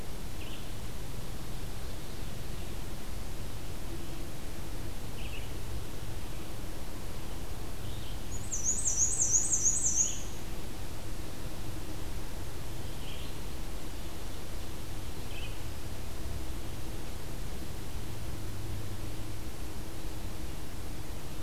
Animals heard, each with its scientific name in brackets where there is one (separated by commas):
Ovenbird (Seiurus aurocapilla), Black-and-white Warbler (Mniotilta varia), Red-eyed Vireo (Vireo olivaceus)